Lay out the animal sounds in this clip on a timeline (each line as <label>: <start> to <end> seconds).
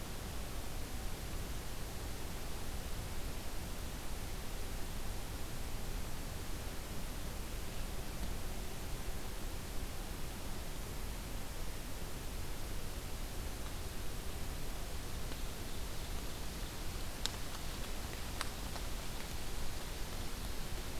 Ovenbird (Seiurus aurocapilla): 15.3 to 17.2 seconds